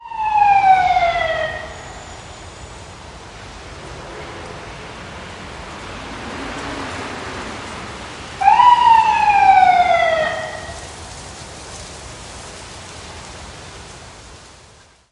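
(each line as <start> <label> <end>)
0.0 A short siren from an emergency vehicle. 1.9
1.9 Sounds of a city. 8.4
8.4 A siren is sounding. 10.7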